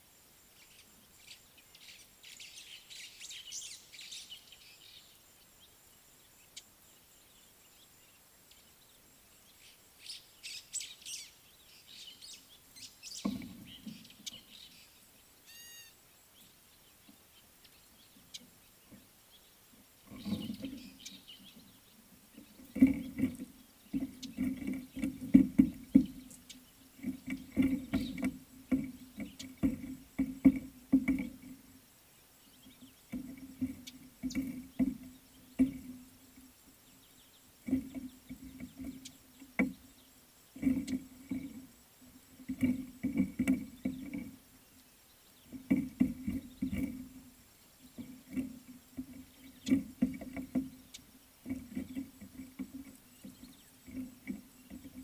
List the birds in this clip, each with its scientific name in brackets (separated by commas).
Gray-backed Camaroptera (Camaroptera brevicaudata), White-browed Sparrow-Weaver (Plocepasser mahali), Fork-tailed Drongo (Dicrurus adsimilis)